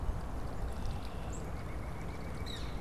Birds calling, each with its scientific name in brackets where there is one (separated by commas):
Red-winged Blackbird (Agelaius phoeniceus), White-breasted Nuthatch (Sitta carolinensis), Black-capped Chickadee (Poecile atricapillus)